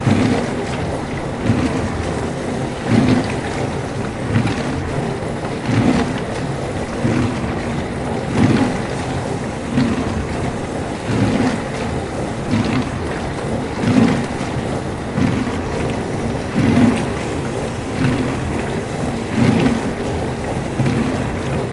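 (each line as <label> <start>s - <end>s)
A washing machine operating rhythmically. 0.0s - 21.7s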